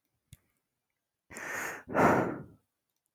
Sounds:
Sigh